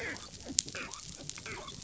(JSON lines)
{"label": "biophony, dolphin", "recorder": "SoundTrap 500"}